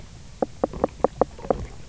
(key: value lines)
label: biophony
recorder: SoundTrap 300